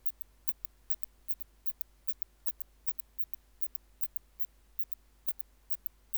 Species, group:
Phaneroptera falcata
Orthoptera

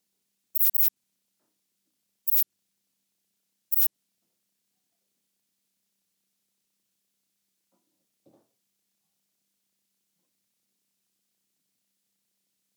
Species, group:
Ephippiger diurnus
Orthoptera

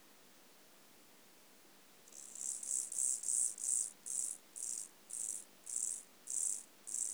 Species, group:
Chorthippus mollis
Orthoptera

